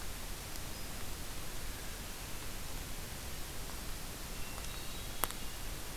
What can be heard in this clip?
Hermit Thrush